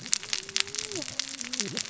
{"label": "biophony, cascading saw", "recorder": "SoundTrap 600 or HydroMoth"}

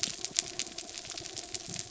{"label": "anthrophony, mechanical", "recorder": "SoundTrap 300"}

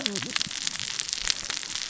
{"label": "biophony, cascading saw", "recorder": "SoundTrap 600 or HydroMoth"}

